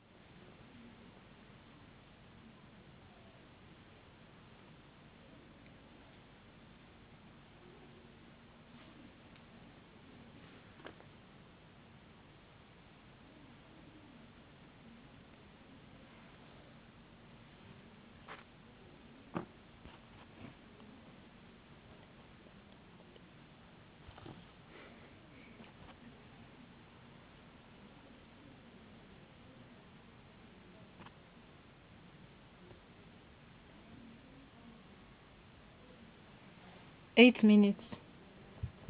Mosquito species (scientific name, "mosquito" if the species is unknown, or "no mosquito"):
no mosquito